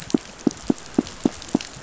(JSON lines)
{"label": "biophony, pulse", "recorder": "SoundTrap 500"}